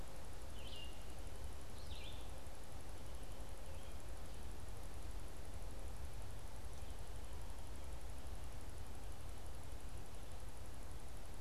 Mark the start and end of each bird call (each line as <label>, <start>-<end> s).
Red-eyed Vireo (Vireo olivaceus), 0.0-2.6 s